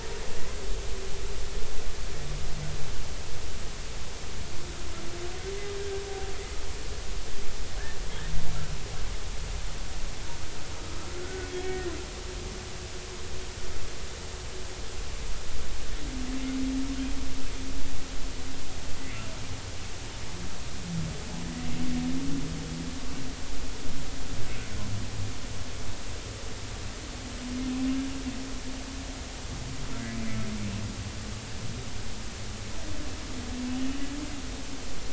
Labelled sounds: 11.2	11.9	humpback whale, 1.4 to 1.9 kHz

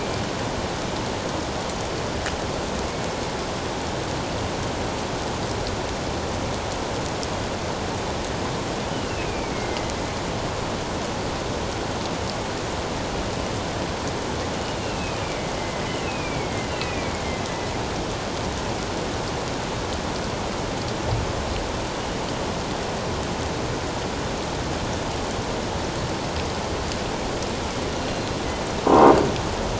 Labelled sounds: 8.9	9.9	killer whale, northern resident, A clan, AA subclan, A04 pod, 1.9 to 3.1 kHz
14.6	17.2	killer whale, northern resident, A clan, AA subclan, A04 pod, 1.9 to 3.0 kHz
28.0	28.3	killer whale, northern resident, G clan, 2.7 to 4.2 kHz
28.9	29.2	killer whale, northern resident, G clan, 0.91 to 1.1 kHz

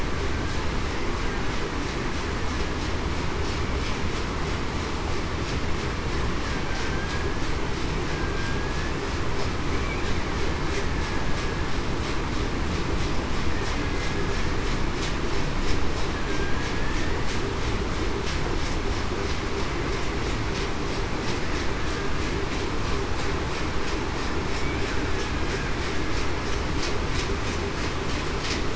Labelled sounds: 6.8	7.3	killer whale, Bigg's (transient), 1.5 to 1.7 kHz
8.0	8.7	killer whale, Bigg's (transient), 1.6 to 1.7 kHz

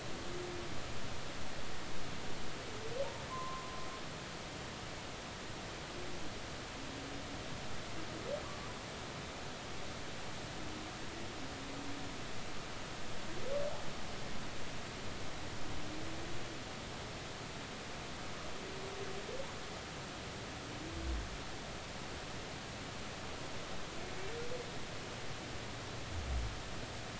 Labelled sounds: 3.3	3.8	humpback whale, 0.96 to 1.1 kHz
8.5	8.7	humpback whale, 0.96 to 1.2 kHz

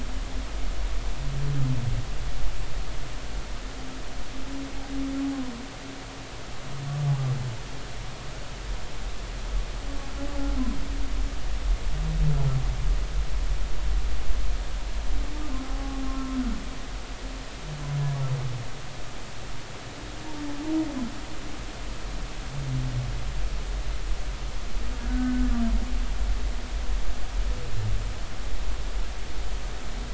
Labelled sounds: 15.6	16.0	humpback whale, 0.80 to 0.86 kHz
25.1	25.5	humpback whale, 1.4 to 1.6 kHz

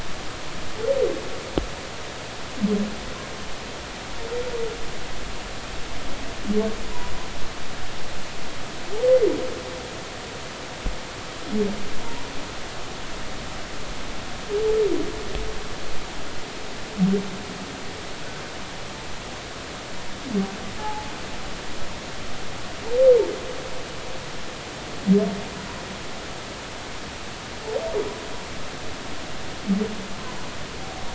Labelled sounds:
20.8	21.1	humpback whale, 0.80 to 0.93 kHz

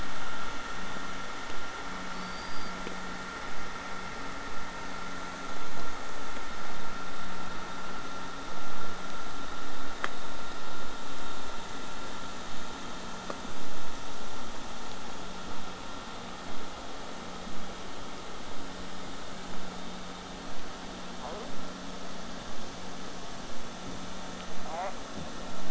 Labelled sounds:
2.1	2.7	killer whale, southern resident, J pod, whistle, 4.3 to 4.9 kHz

